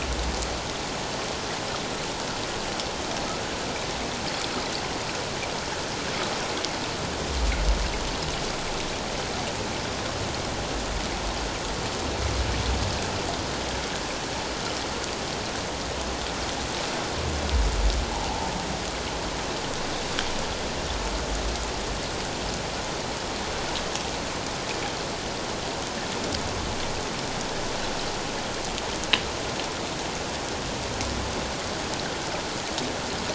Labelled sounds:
18.1	18.5	humpback whale, 0.78 to 1.0 kHz

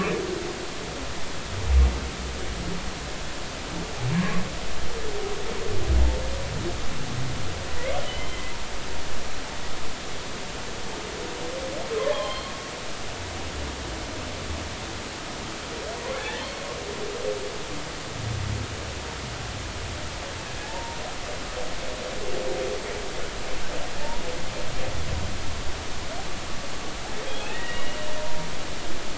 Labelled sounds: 4.2	4.4	humpback whale, 0.99 to 1.2 kHz
8.0	8.4	humpback whale, 2.9 to 3.2 kHz
12.0	12.5	humpback whale, 0.99 to 3.4 kHz
16.2	16.4	humpback whale, 1.6 to 2.0 kHz
20.6	21.0	humpback whale, 0.80 to 0.99 kHz
27.2	28.5	humpback whale, 0.90 to 3.4 kHz

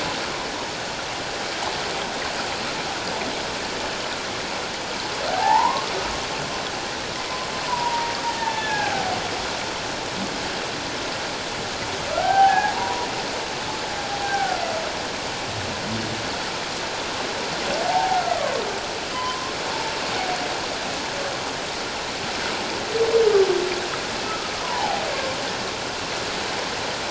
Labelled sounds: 5.3	5.9	humpback whale, 0.78 to 1.3 kHz
7.6	9.2	humpback whale, 0.78 to 1.9 kHz
12.1	13.1	humpback whale, 0.78 to 1.8 kHz
14.2	14.6	humpback whale, 1.3 to 1.6 kHz
17.8	18.2	humpback whale, 0.78 to 0.94 kHz
19.1	19.5	humpback whale, 0.94 to 1.2 kHz
24.6	25.0	humpback whale, 0.78 to 1.1 kHz

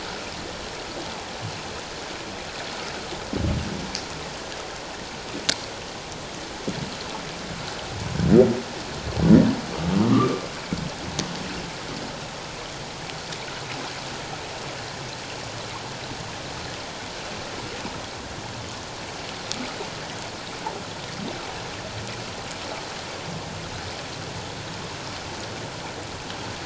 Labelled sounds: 10.1	10.4	humpback whale, 1.0 to 1.3 kHz

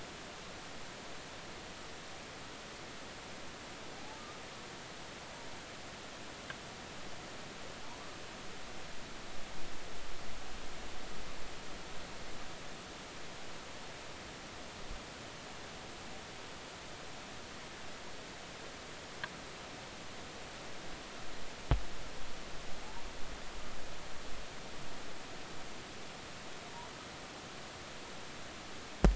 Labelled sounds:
4.0	4.2	humpback whale, 0.80 to 0.93 kHz

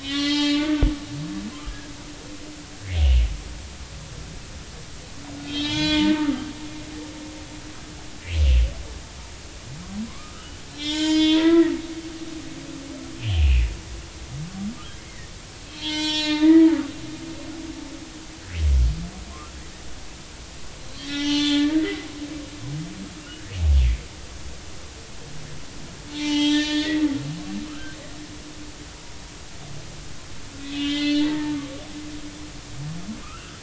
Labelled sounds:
0.0	0.8	humpback whale, 1.1 to 4.4 kHz
1.7	1.9	humpback whale, 1.6 to 1.8 kHz
5.4	6.1	humpback whale, 0.86 to 5.2 kHz
10.1	11.7	humpback whale, 0.86 to 6.9 kHz
13.2	13.6	humpback whale, 2.4 to 3.4 kHz
15.0	17.0	humpback whale, 0.83 to 7.5 kHz
20.9	22.1	humpback whale, 0.83 to 5.7 kHz
26.1	28.0	humpback whale, 0.83 to 6.7 kHz
30.6	31.6	humpback whale, 0.86 to 4.4 kHz
33.2	33.6	humpback whale, 0.99 to 3.0 kHz

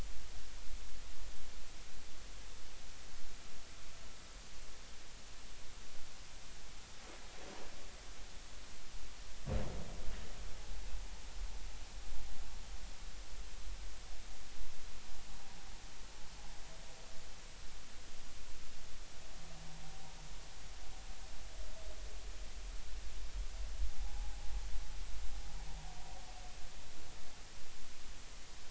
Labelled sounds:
24.0	24.4	humpback whale, 0.80 to 0.93 kHz

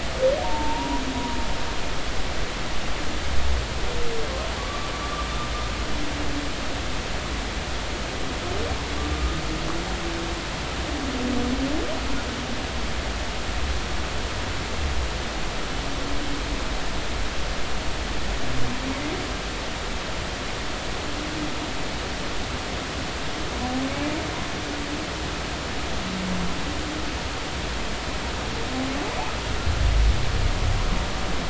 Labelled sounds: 0.4	1.0	humpback whale, 0.86 to 1.0 kHz
4.6	5.3	humpback whale, 0.99 to 1.2 kHz
23.9	24.2	humpback whale, 2.1 to 2.4 kHz

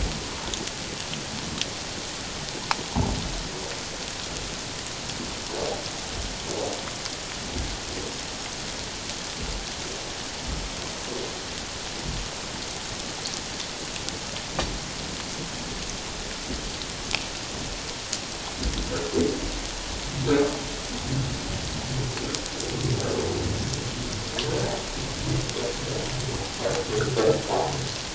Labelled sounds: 27.5	27.7	humpback whale, 0.78 to 1.0 kHz

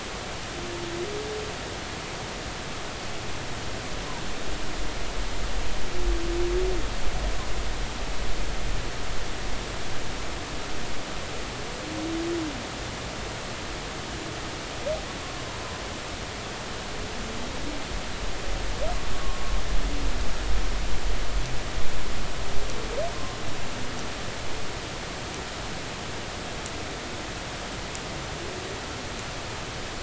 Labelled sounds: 19.1	19.4	humpback whale, 1.0 to 1.2 kHz

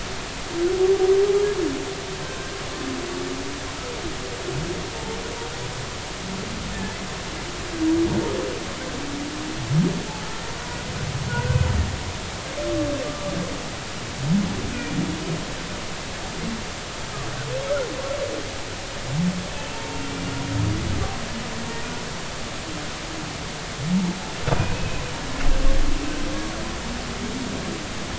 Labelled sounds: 11.3	11.6	humpback whale, 1.4 to 1.6 kHz
13.0	13.3	humpback whale, 1.1 to 1.2 kHz
19.7	20.0	humpback whale, 0.86 to 0.96 kHz
24.6	25.0	humpback whale, 2.4 to 2.6 kHz

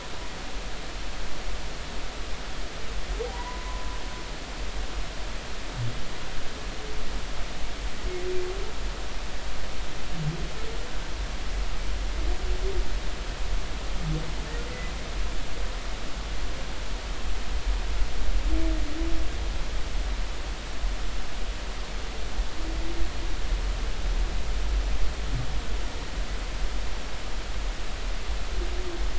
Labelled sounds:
3.3	4.0	humpback whale, 0.90 to 1.1 kHz
14.7	14.9	humpback whale, 1.95 to 2.05 kHz

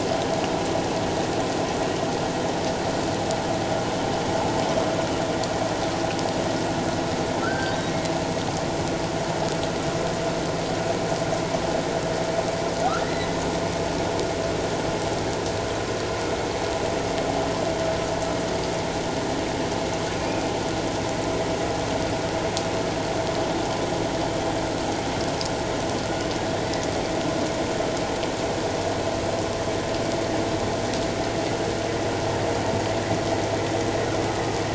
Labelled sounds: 7.4	7.8	humpback whale, 1.3 to 1.6 kHz
13.0	13.4	humpback whale, 1.7 to 2.1 kHz
20.2	20.5	humpback whale, 2.3 to 2.6 kHz

